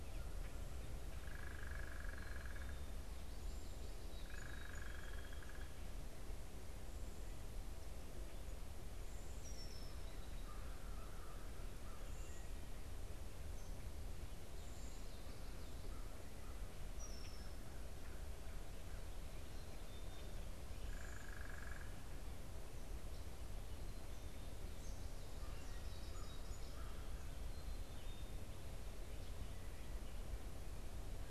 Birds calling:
Song Sparrow (Melospiza melodia)
American Crow (Corvus brachyrhynchos)
Black-capped Chickadee (Poecile atricapillus)
unidentified bird
Red-winged Blackbird (Agelaius phoeniceus)

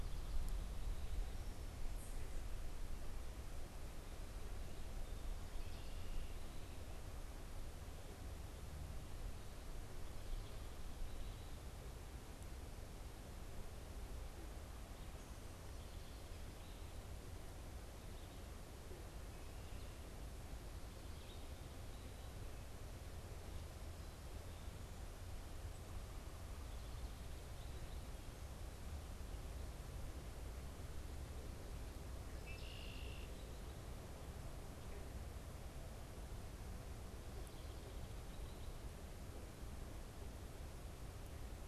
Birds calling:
Red-winged Blackbird (Agelaius phoeniceus)

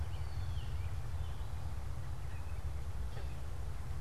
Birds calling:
American Robin (Turdus migratorius)

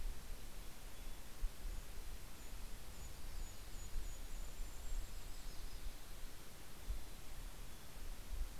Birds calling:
Golden-crowned Kinglet (Regulus satrapa)
Mountain Chickadee (Poecile gambeli)
Yellow-rumped Warbler (Setophaga coronata)

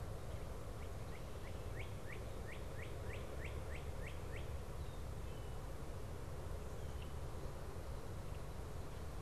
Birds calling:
Northern Cardinal (Cardinalis cardinalis)

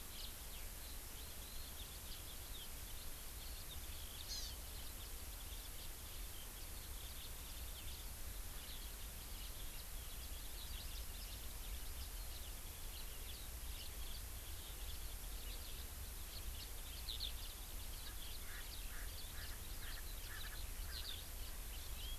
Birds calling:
Hawaii Amakihi (Chlorodrepanis virens)
Eurasian Skylark (Alauda arvensis)
House Finch (Haemorhous mexicanus)
Erckel's Francolin (Pternistis erckelii)

